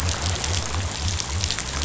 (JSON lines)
{"label": "biophony", "recorder": "SoundTrap 500"}